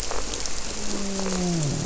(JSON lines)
{"label": "biophony, grouper", "recorder": "SoundTrap 300"}